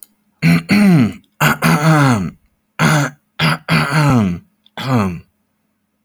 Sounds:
Throat clearing